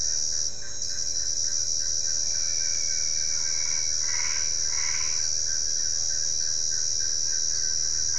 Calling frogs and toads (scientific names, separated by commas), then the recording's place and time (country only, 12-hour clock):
Boana albopunctata
Brazil, 7:15pm